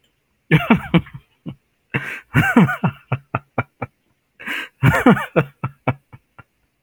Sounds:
Laughter